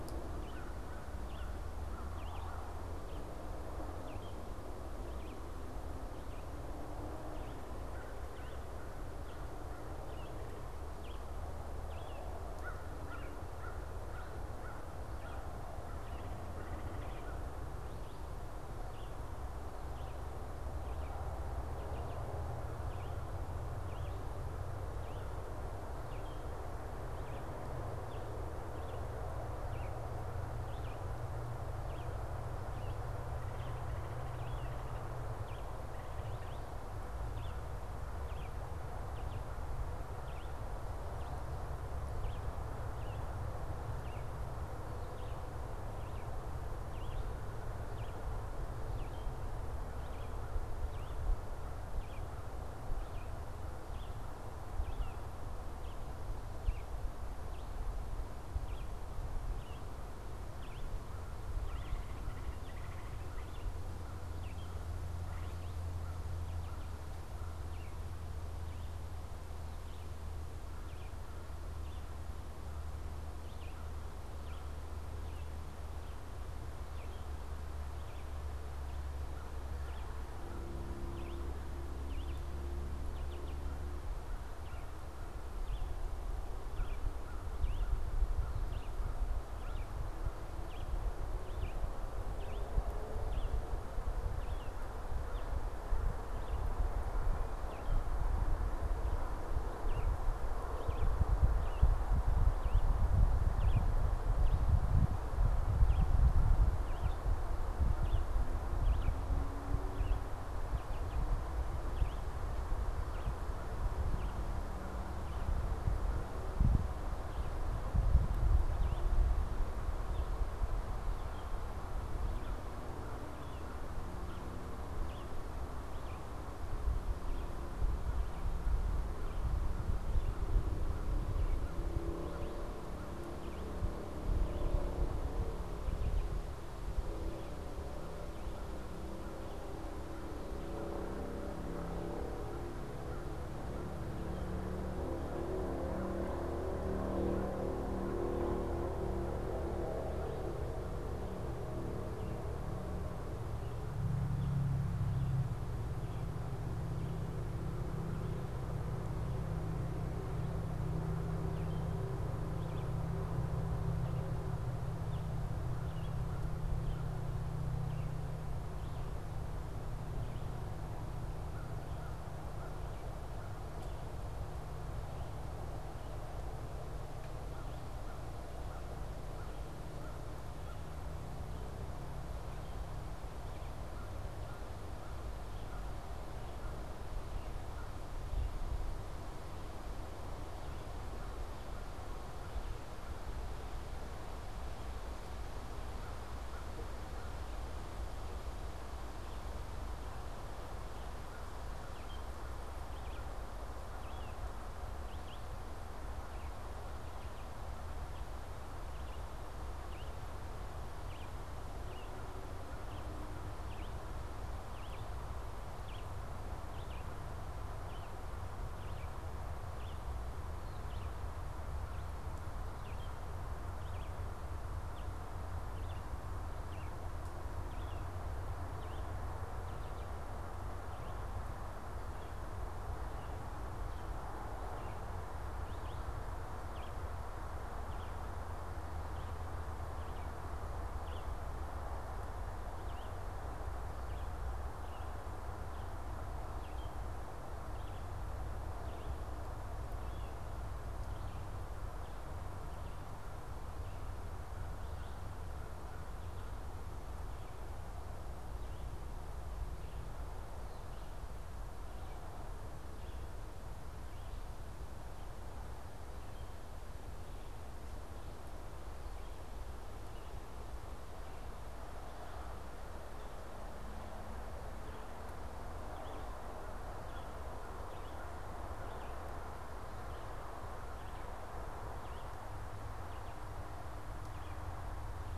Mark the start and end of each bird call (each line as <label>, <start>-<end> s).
Red-eyed Vireo (Vireo olivaceus), 0.0-48.4 s
American Crow (Corvus brachyrhynchos), 12.5-17.5 s
Red-eyed Vireo (Vireo olivaceus), 48.9-108.3 s
American Crow (Corvus brachyrhynchos), 63.1-67.3 s
Red-eyed Vireo (Vireo olivaceus), 108.7-136.4 s
American Crow (Corvus brachyrhynchos), 137.9-144.1 s
Red-eyed Vireo (Vireo olivaceus), 161.2-167.0 s
American Crow (Corvus brachyrhynchos), 171.4-188.0 s
Red-eyed Vireo (Vireo olivaceus), 199.1-225.4 s
Red-eyed Vireo (Vireo olivaceus), 225.7-253.0 s
American Crow (Corvus brachyrhynchos), 275.4-279.1 s
Red-eyed Vireo (Vireo olivaceus), 275.8-284.7 s